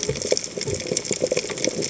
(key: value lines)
label: biophony, chatter
recorder: HydroMoth